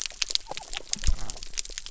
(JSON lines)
{"label": "biophony", "recorder": "SoundTrap 300"}